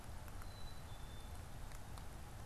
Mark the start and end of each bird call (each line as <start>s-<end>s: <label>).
0.3s-1.4s: Black-capped Chickadee (Poecile atricapillus)